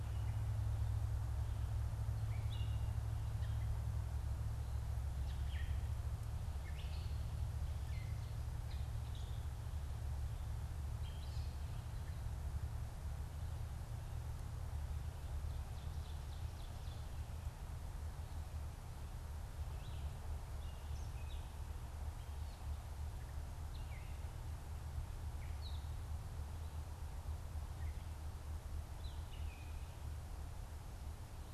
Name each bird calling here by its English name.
Gray Catbird, Ovenbird